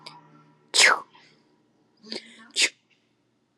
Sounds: Sneeze